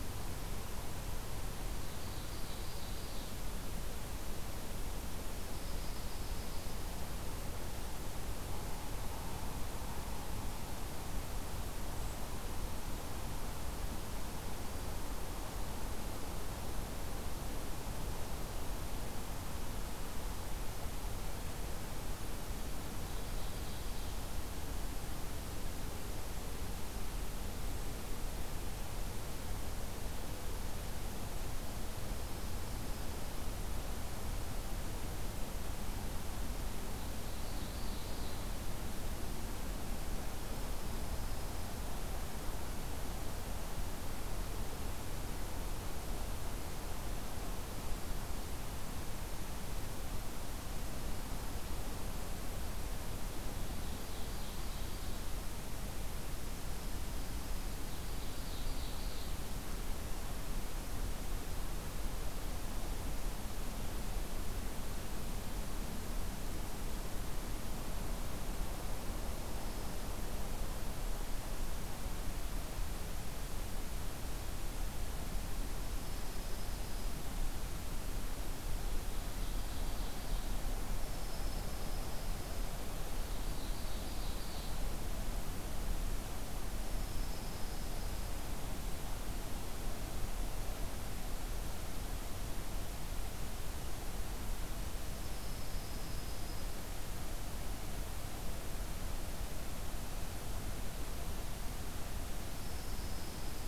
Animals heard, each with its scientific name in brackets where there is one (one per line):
Dark-eyed Junco (Junco hyemalis)
Brown Creeper (Certhia americana)
Ovenbird (Seiurus aurocapilla)